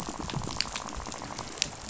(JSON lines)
{"label": "biophony, rattle", "recorder": "SoundTrap 500"}